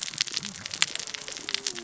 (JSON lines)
{"label": "biophony, cascading saw", "recorder": "SoundTrap 600 or HydroMoth"}